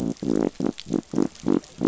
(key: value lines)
label: biophony
recorder: SoundTrap 500